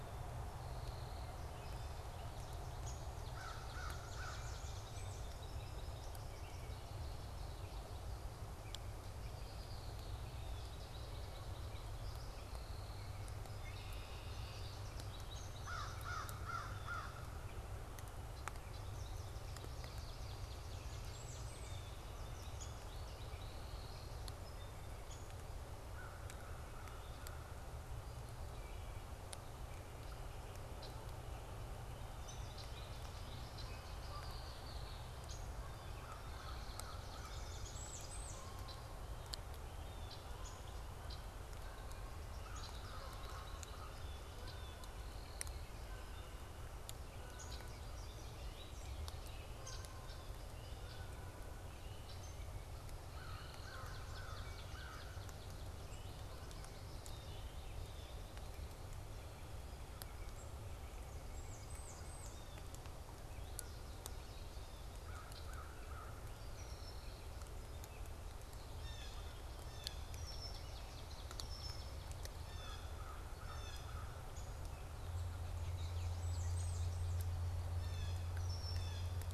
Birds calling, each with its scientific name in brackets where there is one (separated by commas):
American Goldfinch (Spinus tristis), Red-winged Blackbird (Agelaius phoeniceus), Blue Jay (Cyanocitta cristata), Wood Thrush (Hylocichla mustelina), Swamp Sparrow (Melospiza georgiana), Canada Goose (Branta canadensis), Song Sparrow (Melospiza melodia), American Crow (Corvus brachyrhynchos), Downy Woodpecker (Dryobates pubescens), Blackburnian Warbler (Setophaga fusca)